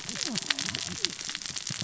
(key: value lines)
label: biophony, cascading saw
recorder: SoundTrap 600 or HydroMoth